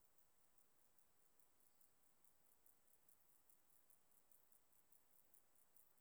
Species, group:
Chorthippus vagans, Orthoptera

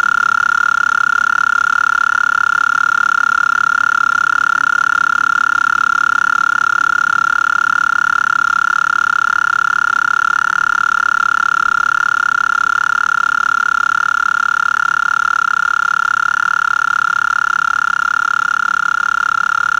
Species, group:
Gryllotalpa gryllotalpa, Orthoptera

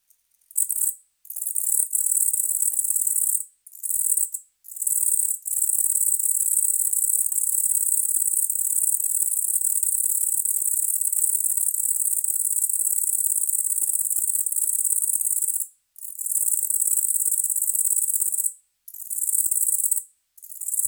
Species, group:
Calliphona koenigi, Orthoptera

